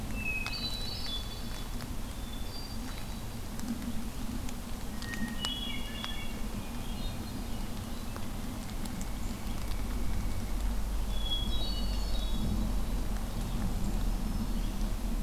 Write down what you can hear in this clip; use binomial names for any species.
Catharus guttatus, Dryocopus pileatus, Setophaga virens